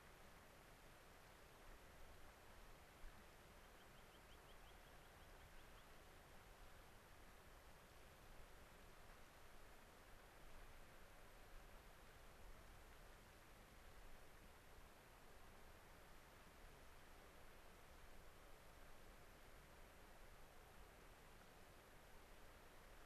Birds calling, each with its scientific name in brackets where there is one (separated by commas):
American Pipit (Anthus rubescens)